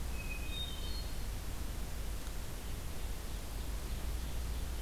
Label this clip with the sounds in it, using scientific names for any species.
Catharus guttatus, Seiurus aurocapilla